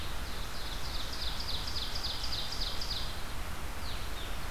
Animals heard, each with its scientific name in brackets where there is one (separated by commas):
Blue-headed Vireo (Vireo solitarius), Ovenbird (Seiurus aurocapilla)